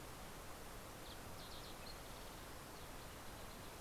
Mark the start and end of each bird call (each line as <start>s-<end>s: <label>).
0.0s-3.1s: Fox Sparrow (Passerella iliaca)